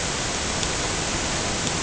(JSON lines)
{"label": "ambient", "recorder": "HydroMoth"}